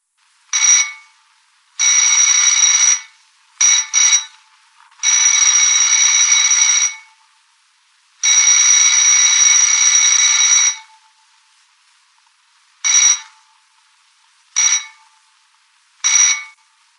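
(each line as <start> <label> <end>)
0.5 An old doorbell rings. 1.0
1.8 An old doorbell rings. 4.3
5.0 An old doorbell rings continuously for a long time. 7.0
8.2 An old doorbell rings continuously for a long time. 10.8
12.8 An old doorbell rings. 13.3
14.6 An old doorbell rings. 14.9
16.0 An old doorbell rings. 16.6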